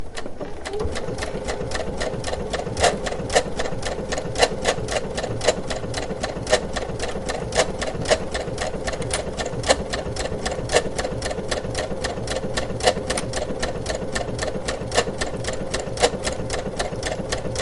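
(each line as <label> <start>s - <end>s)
Rhythmic and repetitive sounds of a slow sewing machine. 0.0s - 17.6s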